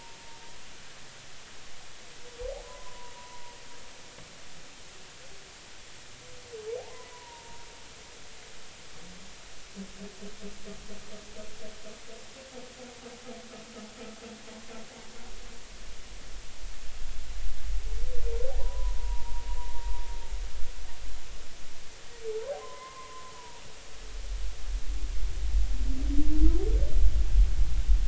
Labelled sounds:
2.6	3.4	humpback whale, 0.93 to 1.1 kHz
6.8	7.6	humpback whale, 0.80 to 1.1 kHz
18.6	19.4	humpback whale, 0.90 to 1.1 kHz
22.6	23.6	humpback whale, 0.90 to 1.1 kHz

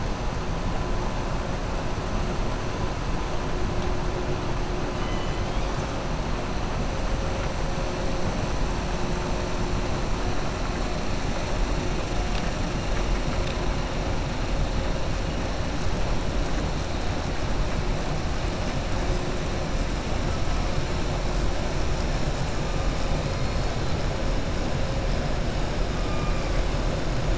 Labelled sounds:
4.9	5.7	killer whale, southern resident, 1.2 to 3.9 kHz

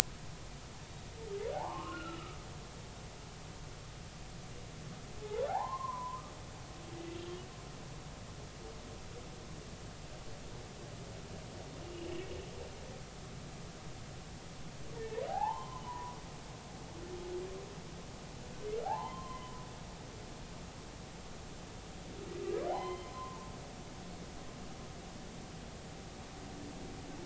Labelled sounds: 1.5	2.4	humpback whale, 0.80 to 1.5 kHz
5.2	6.3	humpback whale, 0.80 to 1.3 kHz
11.9	12.3	humpback whale, 2.6 to 3.0 kHz
15.0	16.2	humpback whale, 0.80 to 1.9 kHz
18.8	19.5	humpback whale, 0.80 to 3.2 kHz
22.7	23.4	humpback whale, 0.80 to 4.2 kHz

